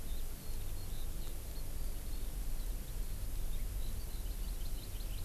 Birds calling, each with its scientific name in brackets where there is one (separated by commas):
Hawaii Amakihi (Chlorodrepanis virens), Eurasian Skylark (Alauda arvensis)